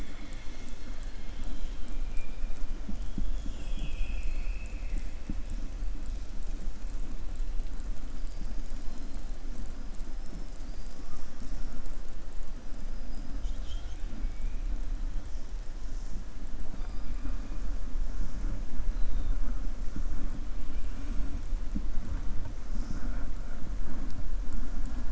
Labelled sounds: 3.3	5.1	killer whale, southern resident, 2.0 to 4.5 kHz
14.1	14.6	killer whale, southern resident, 2.2 to 2.6 kHz

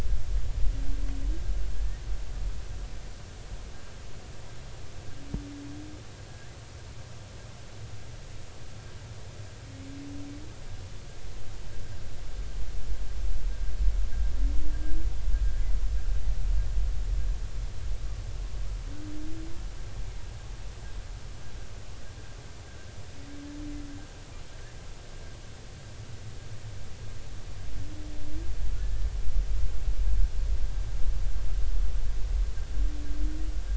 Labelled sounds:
1.8	2.0	humpback whale, 1.6 to 1.9 kHz
6.3	6.5	humpback whale, 1.5 to 1.9 kHz
28.8	29.1	humpback whale, 1.7 to 1.8 kHz

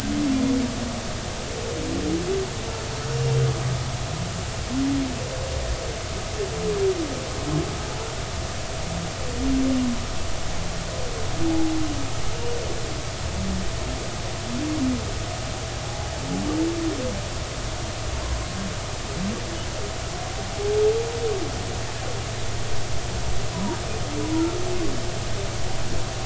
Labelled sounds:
11.5	11.8	humpback whale, 0.80 to 0.90 kHz
15.8	16.1	humpback whale, 0.80 to 0.86 kHz
23.5	23.8	humpback whale, 0.90 to 1.0 kHz

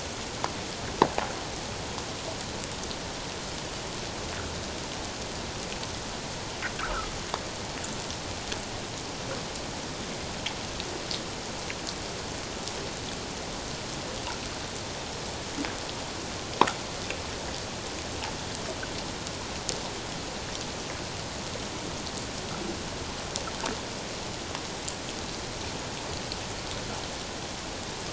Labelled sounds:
6.7	7.1	fish, 1.1 to 1.7 kHz

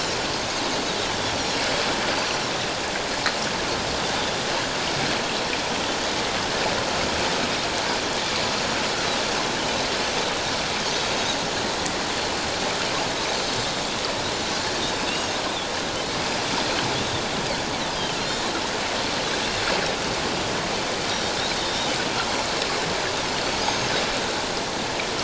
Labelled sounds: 15.1	15.4	Pacific white-sided dolphin, 2.6 to 2.9 kHz
18.2	18.5	Pacific white-sided dolphin, 4.1 to 4.3 kHz
21.5	21.9	Pacific white-sided dolphin, 3.6 to 3.8 kHz
23.6	23.9	Pacific white-sided dolphin, 6.3 to 6.7 kHz

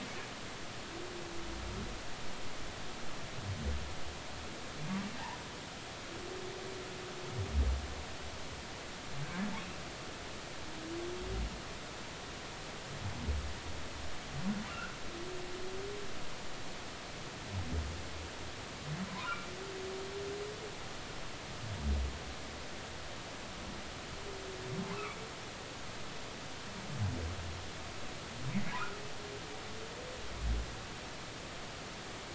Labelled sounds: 9.2	9.5	humpback whale, 1.5 to 1.8 kHz
14.7	15.0	humpback whale, 1.2 to 1.6 kHz
19.1	19.5	humpback whale, 0.90 to 1.5 kHz

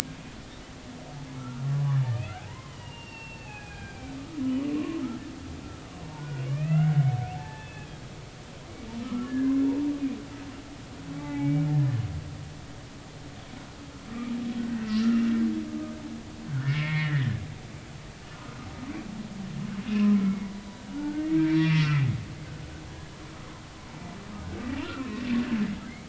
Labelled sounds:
1.4	1.7	humpback whale, 1.3 to 1.5 kHz
2.1	5.0	humpback whale, 0.80 to 3.1 kHz
5.8	7.9	humpback whale, 0.80 to 3.0 kHz
9.0	9.9	humpback whale, 0.86 to 1.9 kHz
11.2	11.7	humpback whale, 0.80 to 2.3 kHz
15.7	17.4	humpback whale, 1.2 to 2.5 kHz
19.9	22.1	humpback whale, 0.83 to 4.7 kHz
24.8	25.2	humpback whale, 1.2 to 2.7 kHz

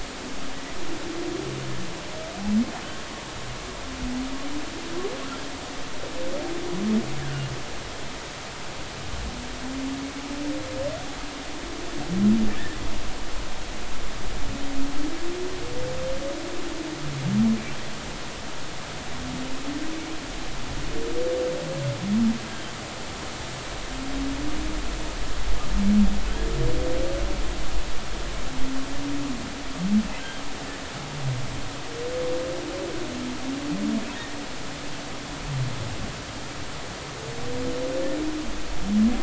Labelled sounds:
7.2	7.5	humpback whale, 1.4 to 1.8 kHz
22.5	22.7	humpback whale, 3.0 to 3.3 kHz

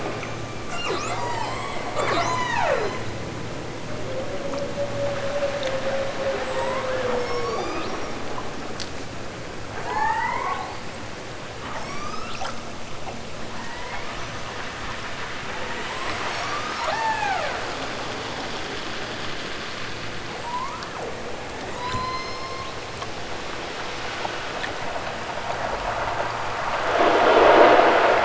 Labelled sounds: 0.6	3.1	killer whale, southern Alaska resident, 0.41 to 8.0 kHz
6.4	8.2	killer whale, southern Alaska resident, 0.69 to 8.0 kHz
9.8	11.0	killer whale, southern Alaska resident, 0.46 to 8.0 kHz
11.6	12.6	killer whale, southern Alaska resident, 0.64 to 8.0 kHz
13.4	14.6	killer whale, southern Alaska resident, 0.88 to 6.6 kHz
16.0	17.6	killer whale, southern Alaska resident, 0.28 to 8.0 kHz
20.4	21.1	killer whale, southern Alaska resident, 0.60 to 8.0 kHz
21.6	23.1	killer whale, southern Alaska resident, 0.51 to 8.0 kHz

